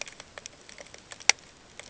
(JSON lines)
{"label": "ambient", "recorder": "HydroMoth"}